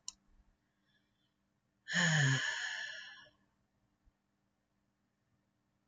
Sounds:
Sigh